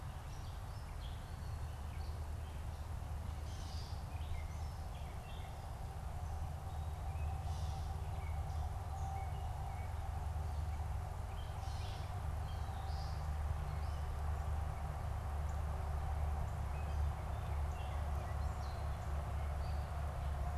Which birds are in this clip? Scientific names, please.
Dumetella carolinensis, Scolopax minor